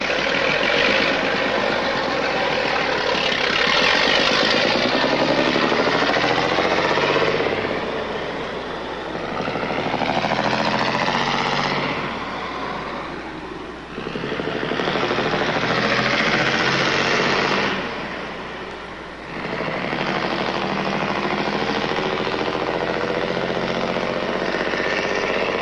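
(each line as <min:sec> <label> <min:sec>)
0:00.0 A truck accelerates and shifts gears. 0:25.6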